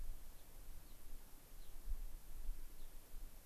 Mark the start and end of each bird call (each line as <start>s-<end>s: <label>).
0.4s-0.5s: Gray-crowned Rosy-Finch (Leucosticte tephrocotis)
0.8s-1.0s: Gray-crowned Rosy-Finch (Leucosticte tephrocotis)
1.6s-1.7s: Gray-crowned Rosy-Finch (Leucosticte tephrocotis)
2.8s-2.9s: Gray-crowned Rosy-Finch (Leucosticte tephrocotis)